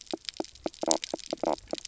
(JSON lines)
{"label": "biophony, knock croak", "recorder": "SoundTrap 300"}